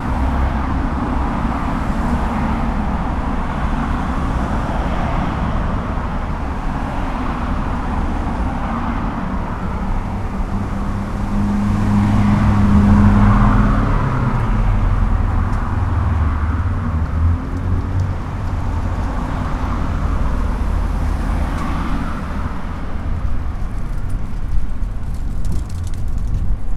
Is a cat meowing?
no